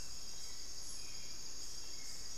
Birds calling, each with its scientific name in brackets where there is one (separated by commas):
Hauxwell's Thrush (Turdus hauxwelli)